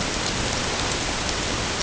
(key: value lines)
label: ambient
recorder: HydroMoth